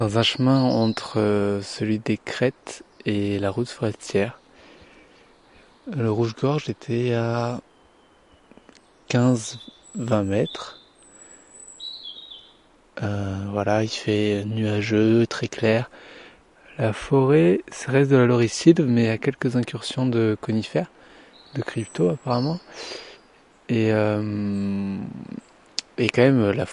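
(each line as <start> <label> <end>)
0.0 A bird chirping in the distance. 1.6
0.0 A man is speaking. 4.4
5.9 A man is speaking French. 7.7
9.0 A man speaking French. 10.8
9.0 A bird chirping in the distance. 12.9
13.0 A man is speaking French. 15.9
15.9 A man is taking a breath. 16.3
16.7 A man is speaking French. 20.9
21.5 A bird chirps in the distance. 23.1
21.5 A man is speaking French. 23.1
23.7 A man is thinking aloud. 25.4
25.6 A man is speaking French. 26.7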